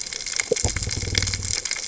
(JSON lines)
{"label": "biophony", "recorder": "HydroMoth"}